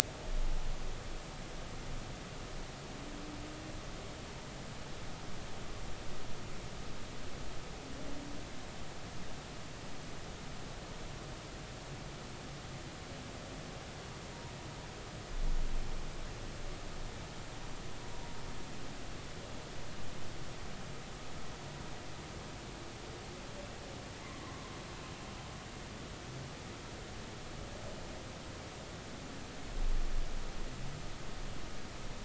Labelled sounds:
24.4	24.7	humpback whale, 0.96 to 1.2 kHz

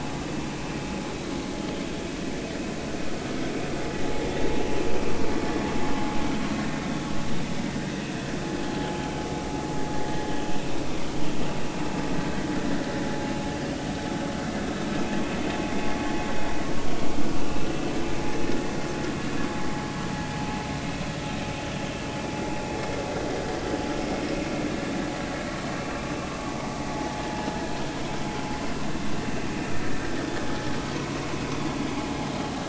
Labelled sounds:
6.8	7.1	vessel noise, 3.4 to 3.6 kHz

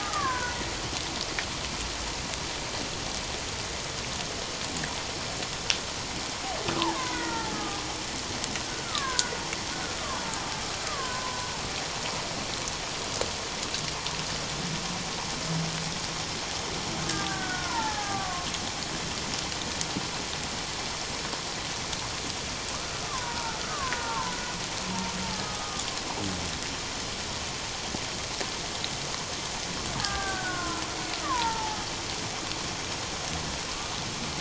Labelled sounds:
6.9	7.8	killer whale, Bigg's (transient), 0.84 to 2.1 kHz
8.6	9.3	killer whale, Bigg's (transient), 0.94 to 1.8 kHz
10.8	11.5	killer whale, Bigg's (transient), 0.91 to 1.7 kHz
17.1	18.5	killer whale, Bigg's (transient), 0.78 to 1.9 kHz
23.1	24.4	killer whale, Bigg's (transient), 0.84 to 1.7 kHz
25.3	25.8	killer whale, Bigg's (transient), 1.1 to 1.3 kHz
30.0	31.8	killer whale, Bigg's (transient), 0.78 to 1.8 kHz

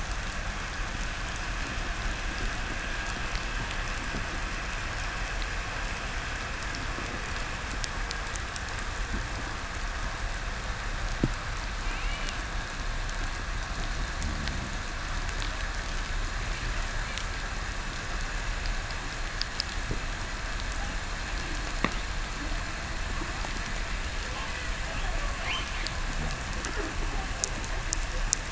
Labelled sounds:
0.4	7.1	vessel noise, 1.1 to 2.9 kHz
11.7	12.7	killer whale, 1.9 to 3.1 kHz
13.9	14.8	fish, 0 to 0.40 kHz

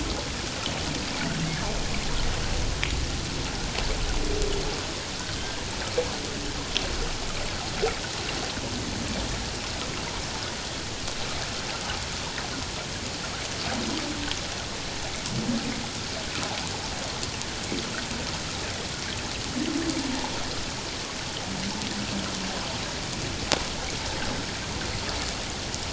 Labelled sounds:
5.4	5.6	humpback whale, 1.5 to 1.8 kHz

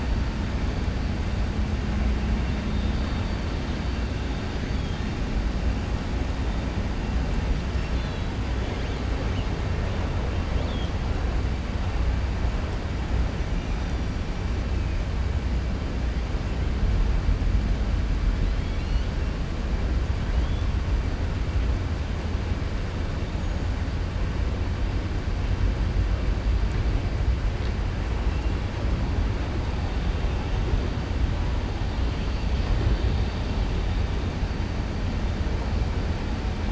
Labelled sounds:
18.5	19.1	killer whale, 2.2 to 4.5 kHz

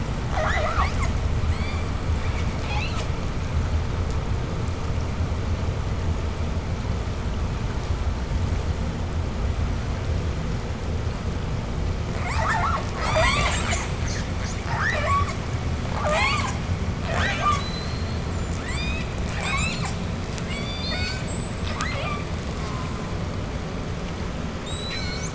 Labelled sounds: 0.2	3.3	killer whale, southern resident, J pod, 0.29 to 8.0 kHz
12.0	20.1	killer whale, southern resident, J pod, 0.22 to 8.0 kHz
20.4	22.2	killer whale, southern resident, J pod, 0.21 to 8.0 kHz
22.4	23.4	killer whale, southern resident, J pod, call S04, 0.75 to 8.0 kHz
24.4	25.3	killer whale, southern resident, J pod, 1.3 to 8.0 kHz

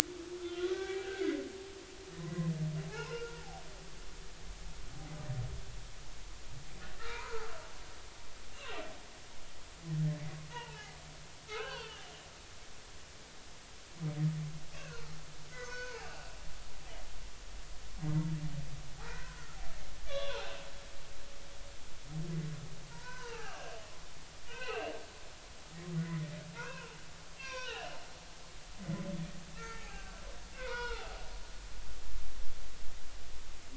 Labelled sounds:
0.4	1.3	humpback whale, 0.80 to 2.4 kHz
2.9	3.6	humpback whale, 0.80 to 5.3 kHz
7.1	7.5	humpback whale, 0.80 to 1.6 kHz
8.5	8.8	humpback whale, 2.6 to 2.9 kHz
10.5	11.0	humpback whale, 0.80 to 1.5 kHz
11.5	12.0	humpback whale, 0.90 to 4.7 kHz
14.7	16.1	humpback whale, 0.80 to 6.6 kHz
17.0	17.3	humpback whale, 2.6 to 2.9 kHz
19.0	20.7	humpback whale, 0.80 to 4.1 kHz
22.9	23.7	humpback whale, 0.80 to 5.1 kHz
24.5	24.9	humpback whale, 1.4 to 2.9 kHz
25.9	26.9	humpback whale, 0.90 to 2.8 kHz
27.4	28.0	humpback whale, 0.80 to 5.9 kHz
28.8	31.2	humpback whale, 0.80 to 5.4 kHz

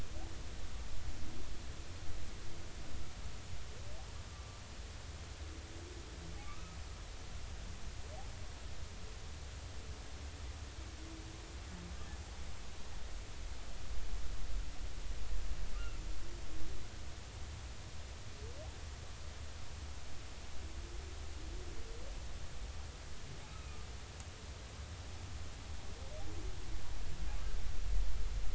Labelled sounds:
6.4	6.8	humpback whale, 1.1 to 1.3 kHz
23.5	23.9	humpback whale, 1.2 to 1.4 kHz

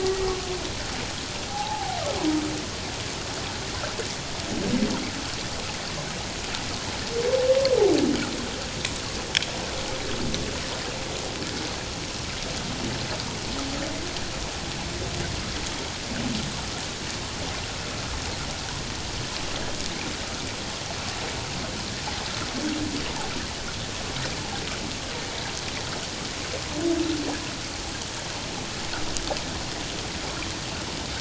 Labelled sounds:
0.0	0.3	humpback whale, 1.8 to 2.0 kHz
1.5	2.0	humpback whale, 0.78 to 0.94 kHz

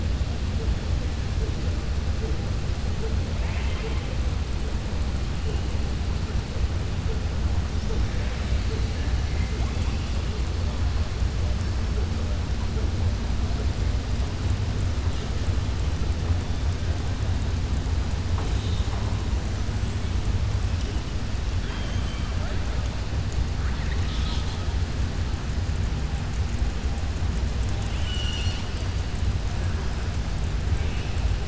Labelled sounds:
3.3	4.1	killer whale, southern resident, 0.47 to 3.2 kHz
21.6	22.6	killer whale, southern resident, 0.58 to 3.4 kHz
23.5	24.6	killer whale, southern resident, 1.2 to 6.2 kHz

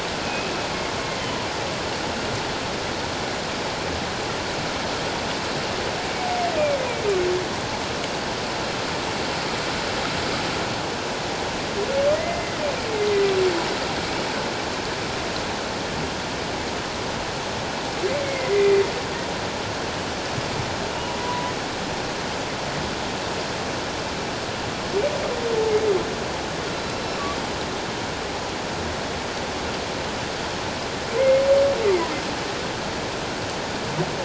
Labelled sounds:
0.2	0.5	humpback whale, 2.4 to 2.6 kHz
1.0	1.3	humpback whale, 1.9 to 2.2 kHz
12.1	12.6	humpback whale, 1.8 to 2.1 kHz
18.2	18.8	humpback whale, 1.8 to 2.2 kHz
21.2	21.5	humpback whale, 0.94 to 1.0 kHz
31.2	31.4	humpback whale, 1.9 to 2.2 kHz

